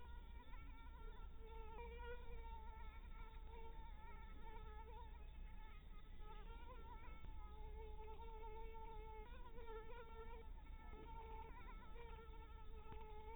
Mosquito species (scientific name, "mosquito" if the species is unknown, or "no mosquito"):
Anopheles maculatus